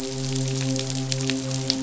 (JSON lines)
{"label": "biophony, midshipman", "recorder": "SoundTrap 500"}